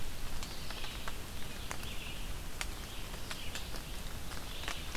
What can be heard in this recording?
Red-eyed Vireo